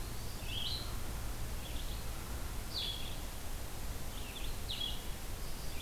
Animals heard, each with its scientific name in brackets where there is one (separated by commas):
Blue-headed Vireo (Vireo solitarius), Red-eyed Vireo (Vireo olivaceus), Song Sparrow (Melospiza melodia), Eastern Wood-Pewee (Contopus virens)